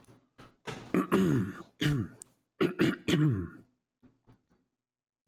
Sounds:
Throat clearing